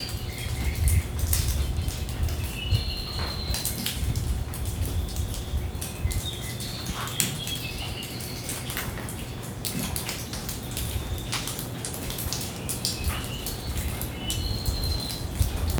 Is water splashing on a hard surface?
yes